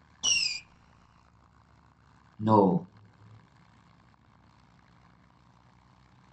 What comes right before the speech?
fireworks